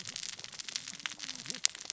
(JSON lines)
{"label": "biophony, cascading saw", "recorder": "SoundTrap 600 or HydroMoth"}